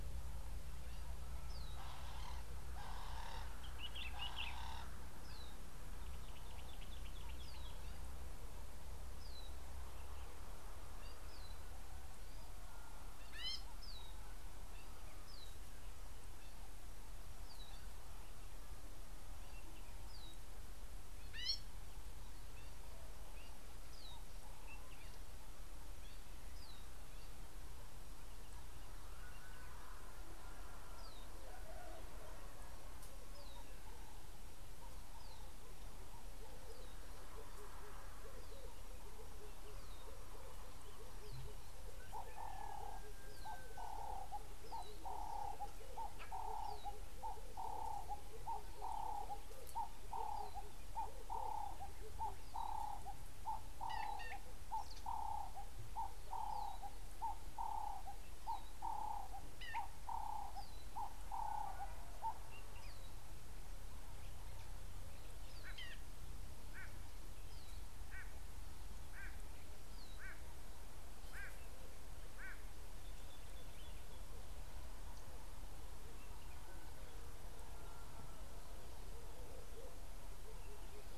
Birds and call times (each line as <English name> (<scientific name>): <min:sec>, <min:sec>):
Ring-necked Dove (Streptopelia capicola): 0:03.0, 0:46.6, 0:56.6
Common Bulbul (Pycnonotus barbatus): 0:04.0
Gray-backed Camaroptera (Camaroptera brevicaudata): 0:13.5, 0:21.4, 0:54.0, 1:05.9
Red-eyed Dove (Streptopelia semitorquata): 0:39.4
White-bellied Go-away-bird (Corythaixoides leucogaster): 1:09.2